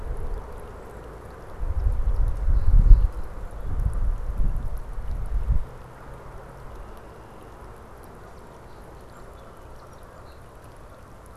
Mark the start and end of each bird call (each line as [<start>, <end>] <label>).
[1.60, 4.10] Golden-crowned Kinglet (Regulus satrapa)
[8.40, 10.50] Song Sparrow (Melospiza melodia)